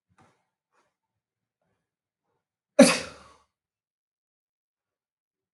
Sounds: Sneeze